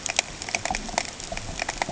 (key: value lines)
label: ambient
recorder: HydroMoth